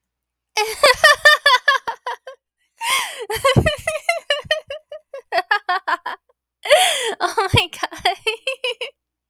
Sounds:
Laughter